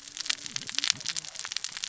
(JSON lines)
{"label": "biophony, cascading saw", "recorder": "SoundTrap 600 or HydroMoth"}